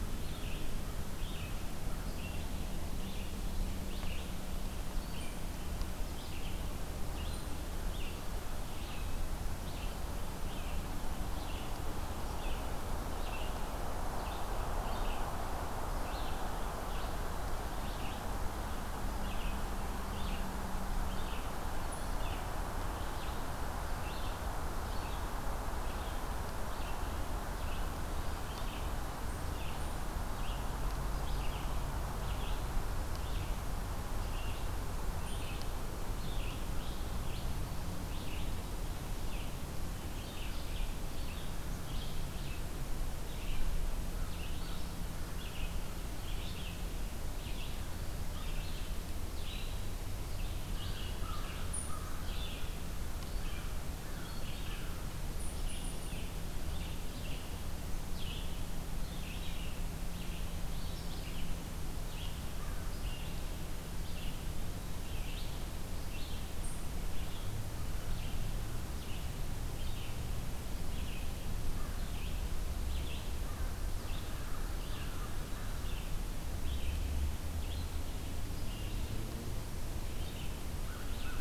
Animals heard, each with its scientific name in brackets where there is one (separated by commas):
Red-eyed Vireo (Vireo olivaceus), American Crow (Corvus brachyrhynchos)